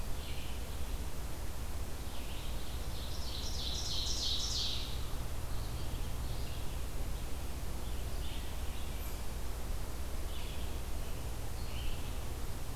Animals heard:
Ovenbird (Seiurus aurocapilla)
Red-eyed Vireo (Vireo olivaceus)
Scarlet Tanager (Piranga olivacea)

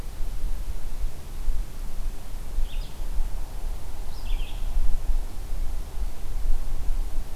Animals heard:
Red-eyed Vireo (Vireo olivaceus)

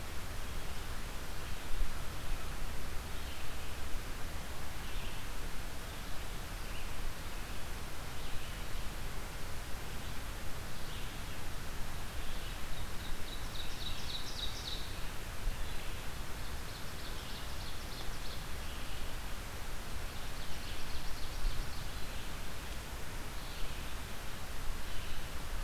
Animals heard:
Ovenbird (Seiurus aurocapilla)
Red-eyed Vireo (Vireo olivaceus)

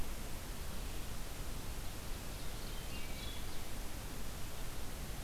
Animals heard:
Wood Thrush (Hylocichla mustelina)
Ovenbird (Seiurus aurocapilla)

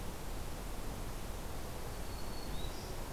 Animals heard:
Black-throated Green Warbler (Setophaga virens)

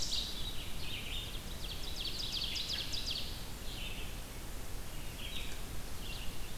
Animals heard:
Ovenbird (Seiurus aurocapilla)
Red-eyed Vireo (Vireo olivaceus)

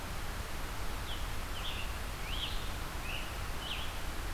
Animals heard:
Scarlet Tanager (Piranga olivacea)
Red-eyed Vireo (Vireo olivaceus)

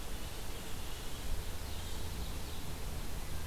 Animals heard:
Ovenbird (Seiurus aurocapilla)

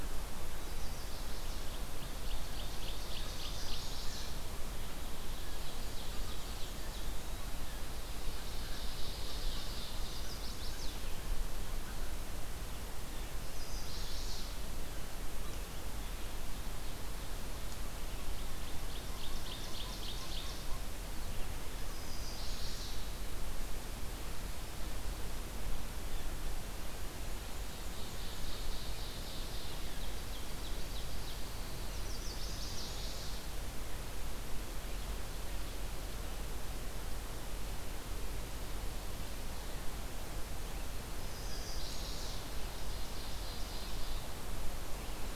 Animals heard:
Eastern Wood-Pewee (Contopus virens)
Pine Warbler (Setophaga pinus)
Black-and-white Warbler (Mniotilta varia)
Ovenbird (Seiurus aurocapilla)
Chestnut-sided Warbler (Setophaga pensylvanica)

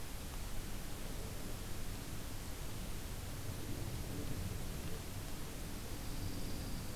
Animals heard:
Dark-eyed Junco (Junco hyemalis)

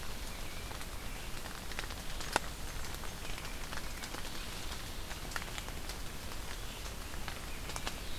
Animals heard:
Blackburnian Warbler (Setophaga fusca)

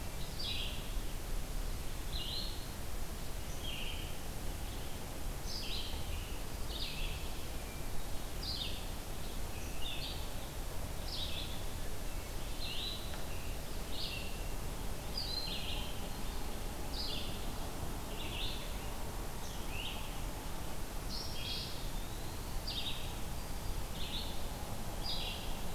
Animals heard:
Red-eyed Vireo (Vireo olivaceus)
Broad-winged Hawk (Buteo platypterus)
Eastern Wood-Pewee (Contopus virens)

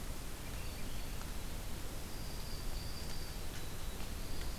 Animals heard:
Swainson's Thrush (Catharus ustulatus)
Dark-eyed Junco (Junco hyemalis)

